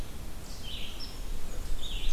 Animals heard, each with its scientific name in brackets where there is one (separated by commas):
Hairy Woodpecker (Dryobates villosus), Red-eyed Vireo (Vireo olivaceus), Black-and-white Warbler (Mniotilta varia)